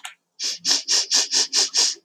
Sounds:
Sniff